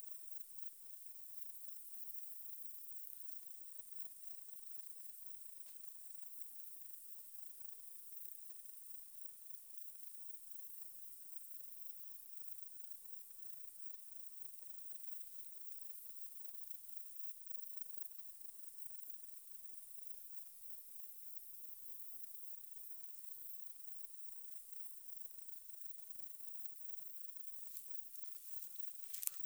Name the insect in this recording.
Platycleis albopunctata, an orthopteran